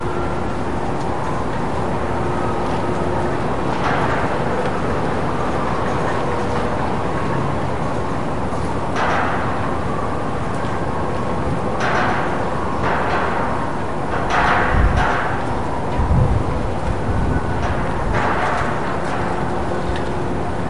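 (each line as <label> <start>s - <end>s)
Ambient city sounds with wind at a construction site. 0.0s - 20.7s
Muffled whistling wind. 0.7s - 3.1s
Creaking sounds of construction scaffolding. 3.7s - 4.8s
Creaking sounds of construction scaffolding. 8.9s - 9.8s
Creaking sounds of construction scaffolding. 11.7s - 13.3s
Creaking sounds of construction scaffolding. 14.3s - 15.4s
Creaking sounds of construction scaffolding. 17.7s - 19.1s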